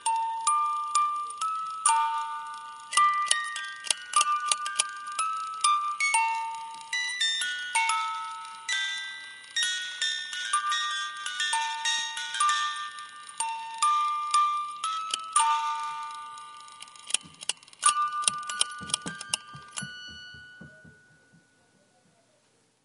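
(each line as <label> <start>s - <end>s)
A music box produces harsh, metallic plucking notes in a rhythmic pattern. 0.0s - 21.1s
A music box produces a continuous metallic whirring sound. 0.0s - 21.1s
A music box produces a repeating, metallic clacking sound. 2.9s - 5.6s
A music box produces a repeating, metallic clacking sound. 17.0s - 20.0s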